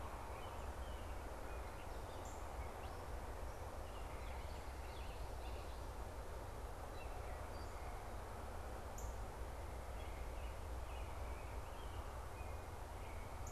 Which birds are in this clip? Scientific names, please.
Dumetella carolinensis, Cardinalis cardinalis